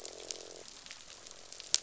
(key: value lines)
label: biophony, croak
recorder: SoundTrap 500